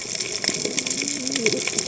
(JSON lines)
{"label": "biophony, cascading saw", "recorder": "HydroMoth"}